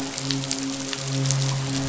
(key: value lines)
label: biophony, midshipman
recorder: SoundTrap 500